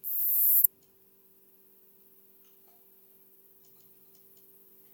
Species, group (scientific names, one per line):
Poecilimon sanctipauli
Orthoptera